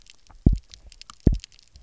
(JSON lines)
{"label": "biophony, double pulse", "recorder": "SoundTrap 300"}